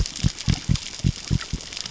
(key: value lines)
label: biophony
recorder: SoundTrap 600 or HydroMoth